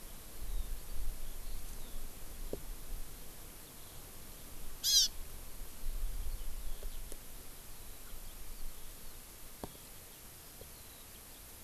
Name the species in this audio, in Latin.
Alauda arvensis, Chlorodrepanis virens